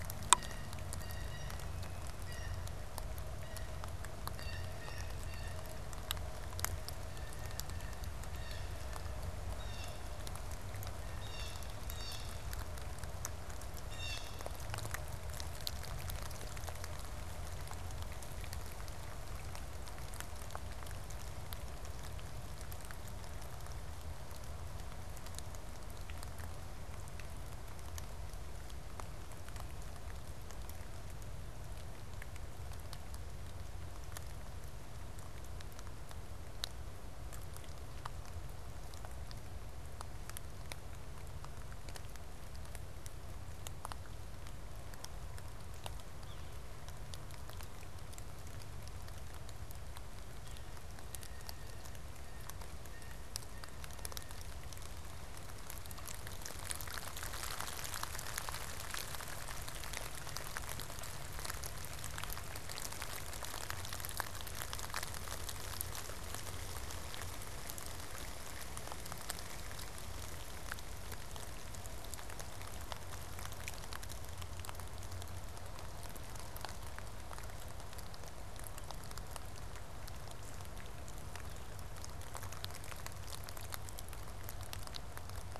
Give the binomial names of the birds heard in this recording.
Cyanocitta cristata, Sphyrapicus varius